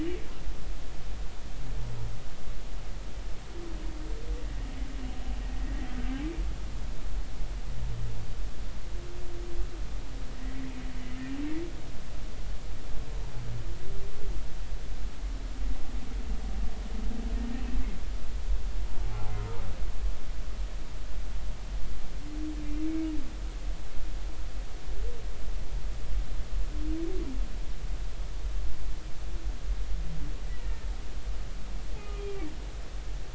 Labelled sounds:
10.3	10.7	humpback whale, 1.8 to 2.1 kHz
19.1	19.3	humpback whale, 0.80 to 0.90 kHz
30.5	30.9	humpback whale, 1.8 to 2.0 kHz
32.1	32.5	humpback whale, 2.2 to 2.5 kHz

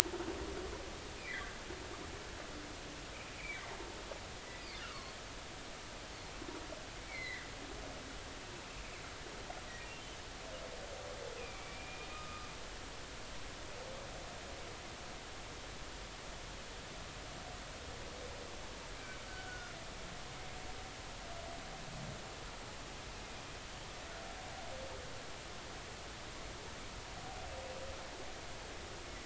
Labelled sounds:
1.2	1.6	humpback whale, 1.5 to 2.6 kHz
3.3	3.6	humpback whale, 2.2 to 2.5 kHz
4.8	5.2	humpback whale, 1.0 to 4.5 kHz
7.0	7.5	humpback whale, 1.7 to 4.3 kHz
11.4	12.5	humpback whale, 1.2 to 2.7 kHz
19.3	19.8	humpback whale, 1.3 to 1.6 kHz

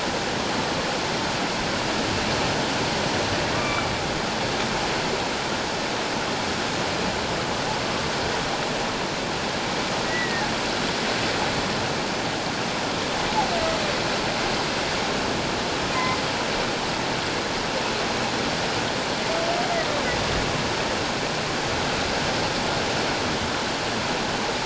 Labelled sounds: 3.5	3.9	humpback whale, 1.1 to 2.4 kHz
10.0	10.4	humpback whale, 1.8 to 2.0 kHz

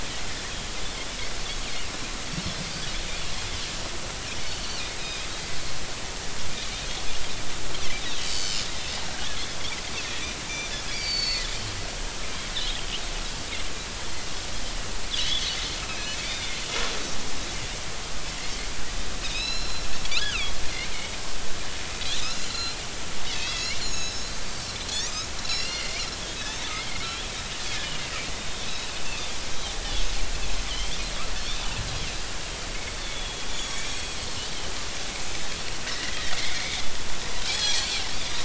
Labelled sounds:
4.6	5.3	Pacific white-sided dolphin, 2.3 to 5.1 kHz
8.2	8.7	Pacific white-sided dolphin, 2.9 to 5.3 kHz
10.9	11.5	Pacific white-sided dolphin, 2.2 to 4.9 kHz
12.1	12.9	Pacific white-sided dolphin, 3.1 to 5.5 kHz
15.2	15.5	Pacific white-sided dolphin, 2.8 to 3.6 kHz
15.8	16.5	Pacific white-sided dolphin, 2.2 to 6.2 kHz
18.3	18.5	Pacific white-sided dolphin, 1.9 to 2.2 kHz
19.2	19.9	Pacific white-sided dolphin, 2.4 to 5.6 kHz
20.2	20.5	Pacific white-sided dolphin, 2.1 to 4.1 kHz
22.2	22.8	Pacific white-sided dolphin, 2.5 to 4.2 kHz
23.3	24.4	Pacific white-sided dolphin, 2.0 to 7.0 kHz
25.4	26.1	Pacific white-sided dolphin, 1.9 to 5.6 kHz
26.4	26.7	Pacific white-sided dolphin, 3.4 to 4.0 kHz
27.8	28.9	Pacific white-sided dolphin, 2.7 to 4.0 kHz
30.7	31.7	Pacific white-sided dolphin, 2.9 to 3.8 kHz
33.0	34.5	Pacific white-sided dolphin, 2.4 to 7.8 kHz
36.3	36.6	Pacific white-sided dolphin, 2.0 to 2.4 kHz
37.5	38.0	Pacific white-sided dolphin, 3.1 to 4.6 kHz

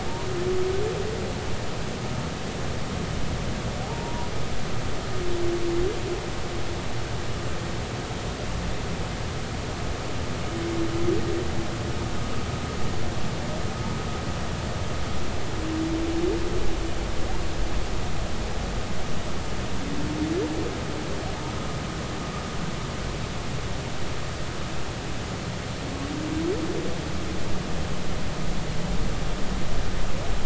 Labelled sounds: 3.8	4.3	humpback whale, 0.80 to 1.1 kHz

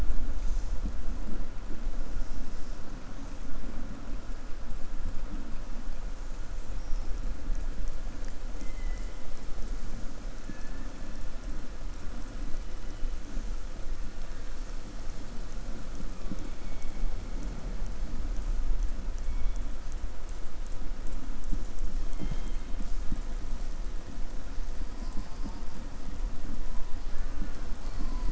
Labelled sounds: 8.5	9.2	killer whale, southern resident, 2.0 to 3.1 kHz
10.4	10.8	killer whale, southern resident, 0.77 to 2.6 kHz

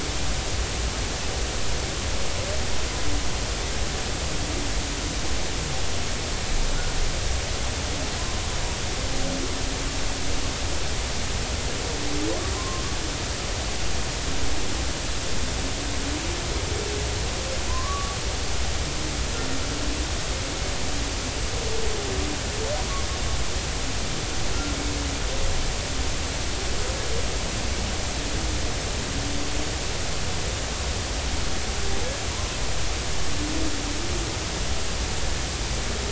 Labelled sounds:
12.6	12.8	humpback whale, 0.99 to 1.1 kHz
17.7	18.2	humpback whale, 0.96 to 1.2 kHz
32.3	32.6	humpback whale, 0.93 to 1.1 kHz

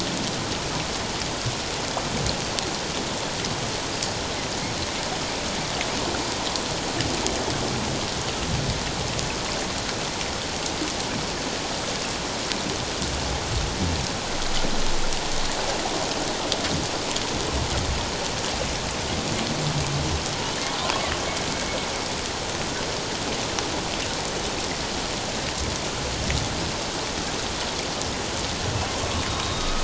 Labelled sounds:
29.3	29.8	humpback whale, 1.2 to 3.8 kHz

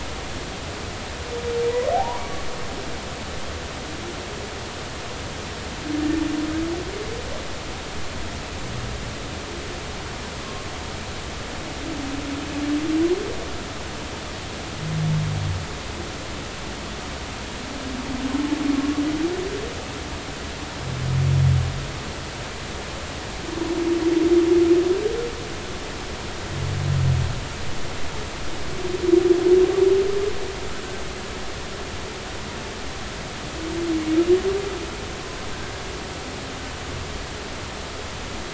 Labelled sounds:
1.9	2.2	humpback whale, 0.80 to 1.0 kHz

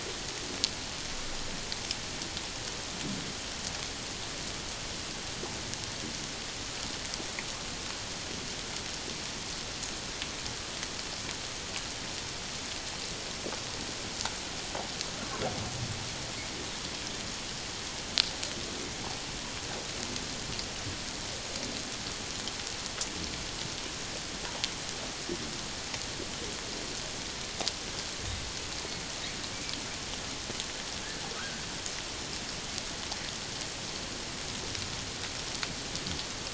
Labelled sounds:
31.4	31.6	humpback whale, 1.2 to 1.7 kHz

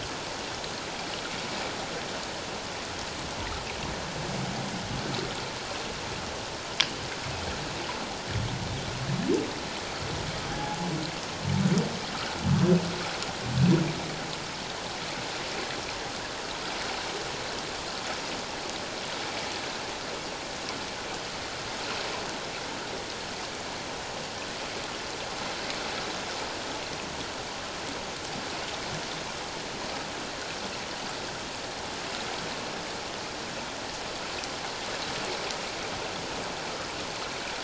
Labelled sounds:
10.5	10.8	humpback whale, 0.78 to 0.91 kHz

